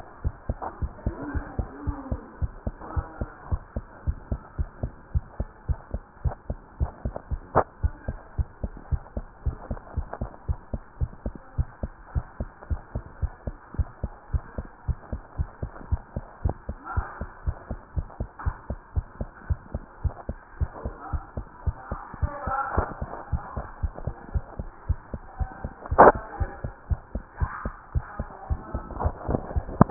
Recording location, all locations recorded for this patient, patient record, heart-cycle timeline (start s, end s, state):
tricuspid valve (TV)
aortic valve (AV)+pulmonary valve (PV)+tricuspid valve (TV)+mitral valve (MV)
#Age: Child
#Sex: Female
#Height: 130.0 cm
#Weight: 24.8 kg
#Pregnancy status: False
#Murmur: Absent
#Murmur locations: nan
#Most audible location: nan
#Systolic murmur timing: nan
#Systolic murmur shape: nan
#Systolic murmur grading: nan
#Systolic murmur pitch: nan
#Systolic murmur quality: nan
#Diastolic murmur timing: nan
#Diastolic murmur shape: nan
#Diastolic murmur grading: nan
#Diastolic murmur pitch: nan
#Diastolic murmur quality: nan
#Outcome: Abnormal
#Campaign: 2015 screening campaign
0.00	0.22	unannotated
0.22	0.34	S1
0.34	0.46	systole
0.46	0.60	S2
0.60	0.80	diastole
0.80	0.94	S1
0.94	1.04	systole
1.04	1.18	S2
1.18	1.34	diastole
1.34	1.48	S1
1.48	1.56	systole
1.56	1.70	S2
1.70	1.84	diastole
1.84	1.98	S1
1.98	2.08	systole
2.08	2.20	S2
2.20	2.38	diastole
2.38	2.54	S1
2.54	2.66	systole
2.66	2.76	S2
2.76	2.94	diastole
2.94	3.08	S1
3.08	3.20	systole
3.20	3.30	S2
3.30	3.48	diastole
3.48	3.62	S1
3.62	3.76	systole
3.76	3.86	S2
3.86	4.06	diastole
4.06	4.20	S1
4.20	4.30	systole
4.30	4.40	S2
4.40	4.58	diastole
4.58	4.70	S1
4.70	4.82	systole
4.82	4.94	S2
4.94	5.12	diastole
5.12	5.24	S1
5.24	5.36	systole
5.36	5.48	S2
5.48	5.66	diastole
5.66	5.78	S1
5.78	5.90	systole
5.90	6.02	S2
6.02	6.24	diastole
6.24	6.36	S1
6.36	6.50	systole
6.50	6.60	S2
6.60	6.80	diastole
6.80	6.92	S1
6.92	7.04	systole
7.04	7.14	S2
7.14	7.30	diastole
7.30	7.44	S1
7.44	7.54	systole
7.54	7.64	S2
7.64	7.80	diastole
7.80	7.96	S1
7.96	8.08	systole
8.08	8.20	S2
8.20	8.38	diastole
8.38	8.48	S1
8.48	8.62	systole
8.62	8.72	S2
8.72	8.88	diastole
8.88	9.02	S1
9.02	9.16	systole
9.16	9.28	S2
9.28	9.44	diastole
9.44	9.58	S1
9.58	9.70	systole
9.70	9.80	S2
9.80	9.96	diastole
9.96	10.10	S1
10.10	10.20	systole
10.20	10.30	S2
10.30	10.48	diastole
10.48	10.60	S1
10.60	10.74	systole
10.74	10.82	S2
10.82	10.98	diastole
10.98	11.12	S1
11.12	11.26	systole
11.26	11.36	S2
11.36	11.56	diastole
11.56	11.68	S1
11.68	11.84	systole
11.84	11.92	S2
11.92	12.12	diastole
12.12	12.26	S1
12.26	12.40	systole
12.40	12.50	S2
12.50	12.68	diastole
12.68	12.82	S1
12.82	12.94	systole
12.94	13.04	S2
13.04	13.22	diastole
13.22	13.34	S1
13.34	13.46	systole
13.46	13.56	S2
13.56	13.74	diastole
13.74	13.90	S1
13.90	14.04	systole
14.04	14.12	S2
14.12	14.30	diastole
14.30	14.42	S1
14.42	14.58	systole
14.58	14.68	S2
14.68	14.86	diastole
14.86	14.98	S1
14.98	15.12	systole
15.12	15.22	S2
15.22	15.38	diastole
15.38	15.50	S1
15.50	15.62	systole
15.62	15.72	S2
15.72	15.90	diastole
15.90	16.02	S1
16.02	16.16	systole
16.16	16.26	S2
16.26	16.42	diastole
16.42	16.58	S1
16.58	16.68	systole
16.68	16.78	S2
16.78	16.94	diastole
16.94	17.08	S1
17.08	17.20	systole
17.20	17.30	S2
17.30	17.46	diastole
17.46	17.58	S1
17.58	17.70	systole
17.70	17.80	S2
17.80	17.96	diastole
17.96	18.08	S1
18.08	18.20	systole
18.20	18.28	S2
18.28	18.44	diastole
18.44	18.58	S1
18.58	18.70	systole
18.70	18.80	S2
18.80	18.94	diastole
18.94	19.08	S1
19.08	19.20	systole
19.20	19.30	S2
19.30	19.48	diastole
19.48	19.62	S1
19.62	19.74	systole
19.74	19.84	S2
19.84	20.02	diastole
20.02	20.16	S1
20.16	20.28	systole
20.28	20.38	S2
20.38	20.58	diastole
20.58	20.70	S1
20.70	20.84	systole
20.84	20.96	S2
20.96	21.12	diastole
21.12	21.24	S1
21.24	21.36	systole
21.36	21.46	S2
21.46	21.64	diastole
21.64	21.76	S1
21.76	21.92	systole
21.92	22.00	S2
22.00	22.20	diastole
22.20	22.34	S1
22.34	22.46	systole
22.46	22.56	S2
22.56	22.76	diastole
22.76	22.90	S1
22.90	23.02	systole
23.02	23.12	S2
23.12	23.32	diastole
23.32	23.44	S1
23.44	23.56	systole
23.56	23.68	S2
23.68	23.82	diastole
23.82	23.94	S1
23.94	24.04	systole
24.04	24.16	S2
24.16	24.34	diastole
24.34	24.44	S1
24.44	24.58	systole
24.58	24.70	S2
24.70	24.86	diastole
24.86	25.02	S1
25.02	25.12	systole
25.12	25.22	S2
25.22	25.38	diastole
25.38	25.52	S1
25.52	25.63	systole
25.63	25.74	S2
25.74	29.90	unannotated